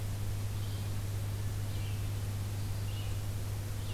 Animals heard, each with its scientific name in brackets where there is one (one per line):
Red-eyed Vireo (Vireo olivaceus)